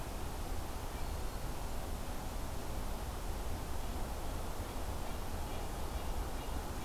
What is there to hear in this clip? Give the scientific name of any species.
Setophaga virens, Sitta canadensis